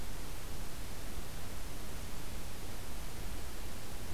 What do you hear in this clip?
forest ambience